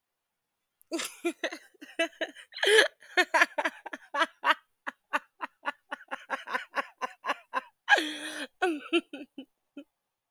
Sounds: Laughter